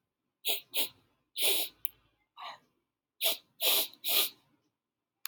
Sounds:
Sniff